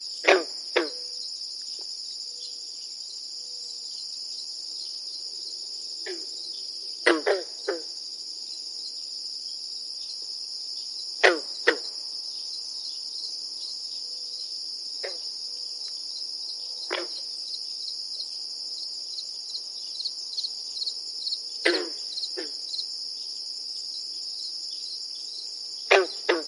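A frog croaks deeply and repeatedly. 0:00.1 - 0:00.9
Birds chirping gently in the distance. 0:01.0 - 0:07.0
Crickets chirping. 0:01.0 - 0:07.0
A frog croaks deeply and repeatedly. 0:07.0 - 0:07.9
Birds chirping gently in the distance. 0:08.0 - 0:11.2
Crickets chirping. 0:08.0 - 0:11.2
A frog croaks deeply and repeatedly. 0:11.2 - 0:12.0
Birds chirping gently in the distance. 0:12.0 - 0:25.9
Crickets chirping. 0:12.0 - 0:25.9
A frog croaks. 0:21.5 - 0:21.9
A frog croaks deeply and repeatedly. 0:25.9 - 0:26.5

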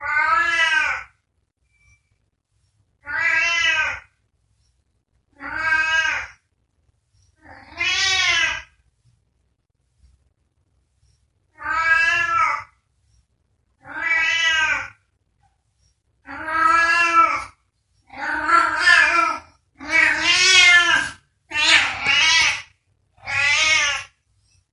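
A cat meowing loudly in the distance. 0:00.0 - 0:01.2
A cat meowing loudly in the distance. 0:02.9 - 0:04.2
A cat meowing loudly in the distance. 0:05.4 - 0:06.5
A cat meowing loudly in the distance. 0:07.4 - 0:09.1
A cat meows loudly twice in the distance. 0:11.5 - 0:15.1
A cat meows loudly multiple times in the distance. 0:16.2 - 0:19.6
A cat meows aggressively multiple times from a distance. 0:19.8 - 0:24.2

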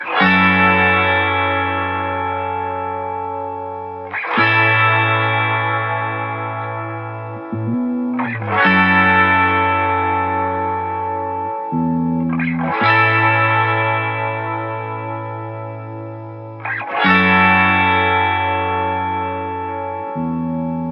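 A guitar is playing. 0:00.1 - 0:07.5
A guitar is playing. 0:08.4 - 0:11.8
A guitar is playing. 0:12.8 - 0:20.4

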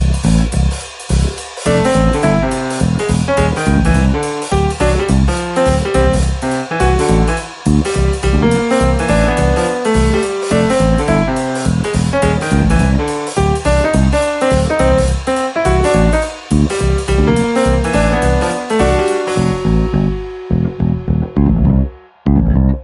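Drums playing in the background. 0:00.0 - 0:20.4
A piano is playing jazz music. 0:01.6 - 0:20.5
Bass guitar playing in a distorted rhythmic pattern. 0:20.5 - 0:22.8

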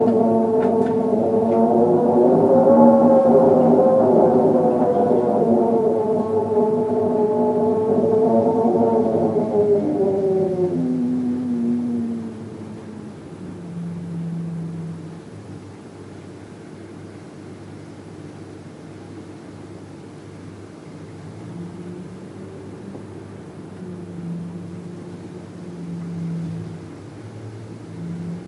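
The wind’s fierce roar fades into a low moan, swirling through empty streets and whispering through cracks. 0:00.0 - 0:15.6
An eerie hush of wind lulls everything into peace. 0:15.7 - 0:28.4

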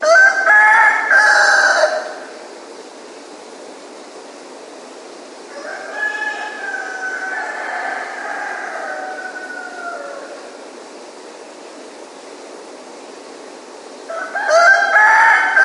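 Roosters crowing. 0:00.0 - 0:02.4
Roosters crowing. 0:05.9 - 0:07.2
Two roosters are crowing. 0:07.1 - 0:10.3
Two roosters are crowing. 0:14.1 - 0:15.6

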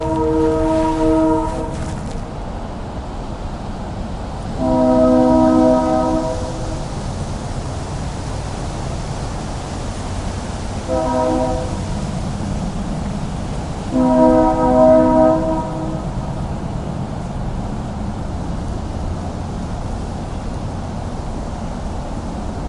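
A ship horn blasts monotonously at a constant tone in the distance. 0:00.0 - 0:02.1
Rain quietly hitting the ground in a non-periodic manner nearby. 0:00.0 - 0:22.7
A ship horn blasts monotonously at a constant tone in the distance. 0:04.5 - 0:07.4
A ship horn blasts monotonously at a constant tone in the distance. 0:10.2 - 0:12.7
A ship horn blasts monotonously at a constant tone in the distance. 0:13.7 - 0:15.8

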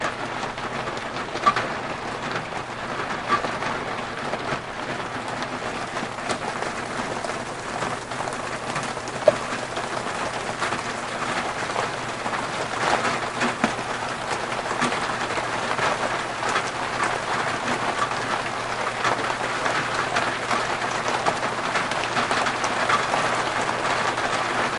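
Raindrops hitting a window. 0:00.0 - 0:24.8
A high-pitched beep. 0:01.3 - 0:01.6
A high-pitched beep. 0:03.2 - 0:03.5
A singular loud, hollow plop. 0:09.1 - 0:09.4
Raindrops hitting a metallic object repeatedly. 0:17.2 - 0:24.8

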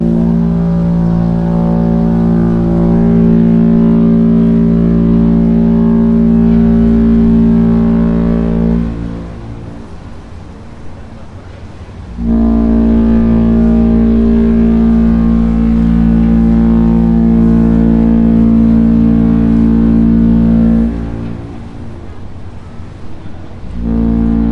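A ship horn blows loudly. 0:00.0 - 0:10.6
Water rushing. 0:00.0 - 0:24.5
A ship horn blows loudly. 0:12.1 - 0:22.3
A ship horn blows loudly. 0:23.6 - 0:24.5

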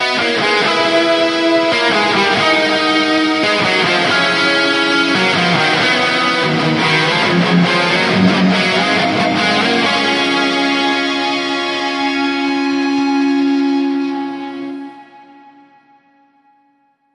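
A person plays a five-part guitar harmony in the key of F#. 0:00.0 - 0:15.7

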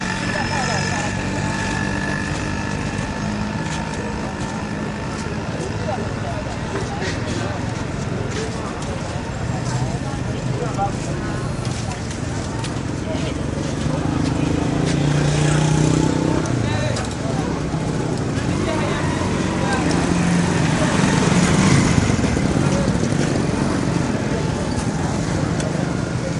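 Car traffic noise. 0:00.0 - 0:26.4
People talking in the background. 0:00.0 - 0:26.4

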